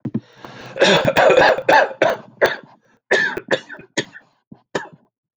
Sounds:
Cough